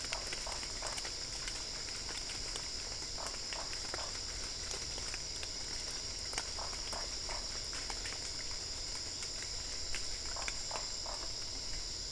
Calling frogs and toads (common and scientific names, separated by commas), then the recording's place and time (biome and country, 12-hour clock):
Usina tree frog (Boana lundii)
Cerrado, Brazil, 9:30pm